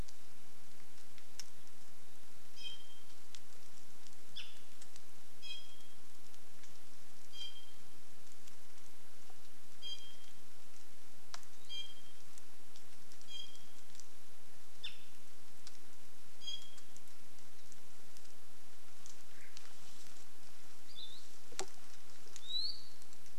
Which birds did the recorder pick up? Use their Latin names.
Drepanis coccinea, Loxops coccineus